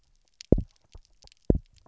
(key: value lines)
label: biophony, double pulse
recorder: SoundTrap 300